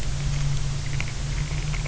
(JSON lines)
{"label": "anthrophony, boat engine", "recorder": "SoundTrap 300"}